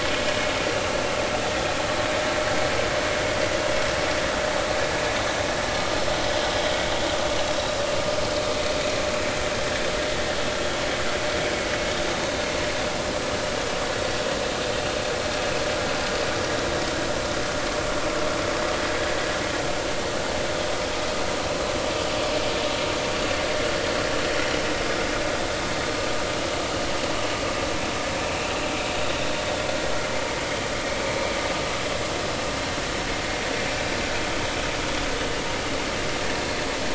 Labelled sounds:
30.5	30.7	vessel noise, 3.1 to 3.2 kHz

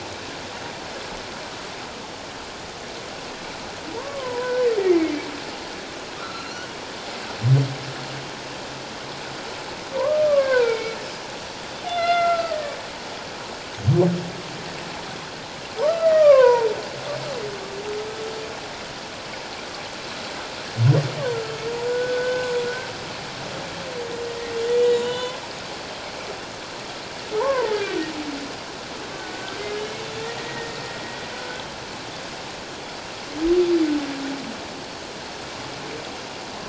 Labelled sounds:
4.0	4.6	humpback whale, 0.88 to 1.8 kHz
6.2	6.7	humpback whale, 1.1 to 4.4 kHz
10.0	11.0	humpback whale, 0.88 to 2.5 kHz
11.8	12.6	humpback whale, 1.2 to 4.2 kHz
15.8	16.7	humpback whale, 0.88 to 3.1 kHz
21.9	22.5	humpback whale, 1.4 to 1.6 kHz
24.9	25.4	humpback whale, 0.94 to 3.9 kHz
27.4	27.7	humpback whale, 0.84 to 1.2 kHz
29.2	31.6	humpback whale, 1.4 to 2.0 kHz
34.7	35.0	Pacific white-sided dolphin, 4.4 to 4.5 kHz

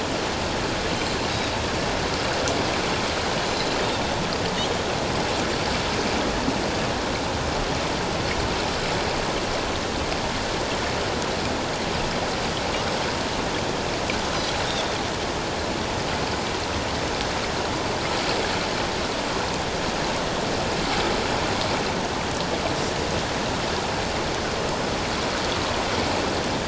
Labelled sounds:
14.7	14.9	Pacific white-sided dolphin, 3.3 to 3.8 kHz

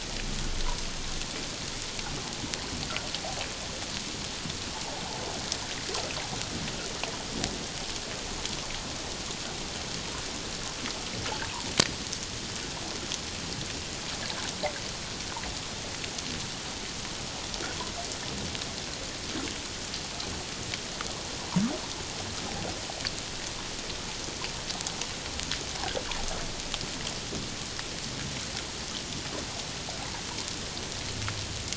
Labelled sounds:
30.0	30.2	water noise, 0.78 to 1.0 kHz

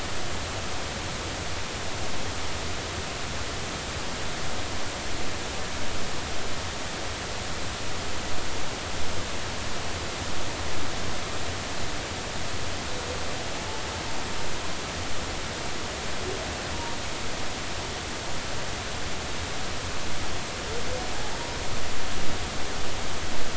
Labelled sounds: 21.1	21.4	humpback whale, 0.80 to 0.96 kHz

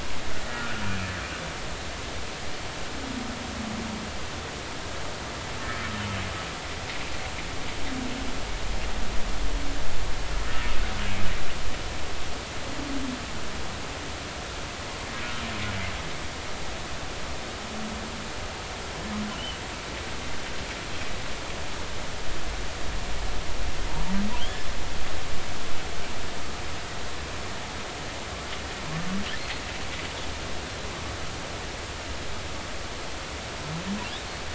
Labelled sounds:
0.5	0.8	humpback whale, 1.3 to 1.6 kHz
24.4	24.6	humpback whale, 2.9 to 3.6 kHz

